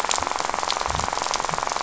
{"label": "biophony, rattle", "recorder": "SoundTrap 500"}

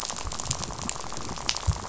{"label": "biophony, rattle", "recorder": "SoundTrap 500"}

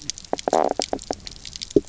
{"label": "biophony, knock croak", "recorder": "SoundTrap 300"}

